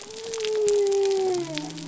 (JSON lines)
{"label": "biophony", "recorder": "SoundTrap 300"}